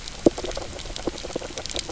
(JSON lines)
{"label": "biophony, knock croak", "recorder": "SoundTrap 300"}